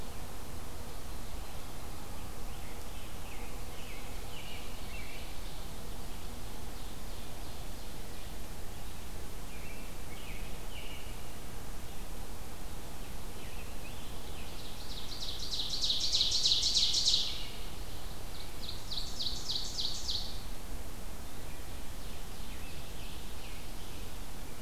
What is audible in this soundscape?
American Robin, Ovenbird, Scarlet Tanager